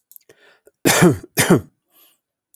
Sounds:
Cough